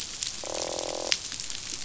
{"label": "biophony, croak", "recorder": "SoundTrap 500"}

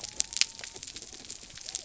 {"label": "biophony", "recorder": "SoundTrap 300"}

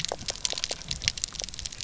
{"label": "biophony, pulse", "recorder": "SoundTrap 300"}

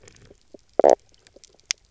{"label": "biophony, knock croak", "recorder": "SoundTrap 300"}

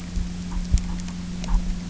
{"label": "anthrophony, boat engine", "recorder": "SoundTrap 300"}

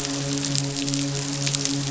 {"label": "biophony, midshipman", "recorder": "SoundTrap 500"}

